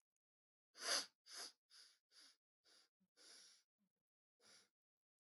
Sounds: Sniff